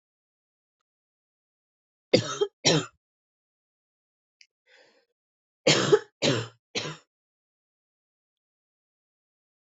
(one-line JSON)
{"expert_labels": [{"quality": "good", "cough_type": "unknown", "dyspnea": false, "wheezing": false, "stridor": false, "choking": false, "congestion": false, "nothing": true, "diagnosis": "lower respiratory tract infection", "severity": "mild"}], "age": 32, "gender": "female", "respiratory_condition": false, "fever_muscle_pain": true, "status": "symptomatic"}